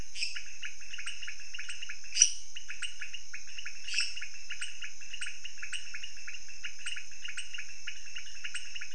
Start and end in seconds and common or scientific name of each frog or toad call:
0.0	8.9	pointedbelly frog
0.1	0.6	lesser tree frog
2.1	2.5	lesser tree frog
3.9	4.2	lesser tree frog